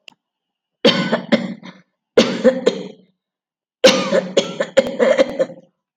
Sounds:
Cough